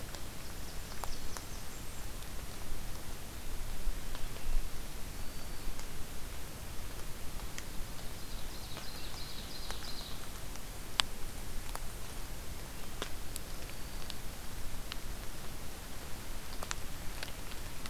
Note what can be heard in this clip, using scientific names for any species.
Setophaga fusca, Setophaga virens, Seiurus aurocapilla